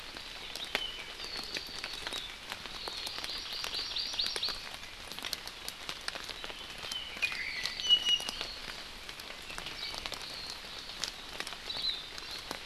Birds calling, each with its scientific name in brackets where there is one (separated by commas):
Hawaii Akepa (Loxops coccineus), Iiwi (Drepanis coccinea), Hawaii Amakihi (Chlorodrepanis virens), Apapane (Himatione sanguinea)